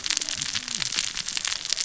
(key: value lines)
label: biophony, cascading saw
recorder: SoundTrap 600 or HydroMoth